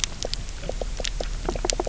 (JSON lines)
{"label": "biophony, knock croak", "recorder": "SoundTrap 300"}